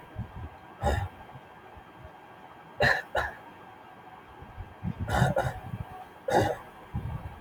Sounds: Cough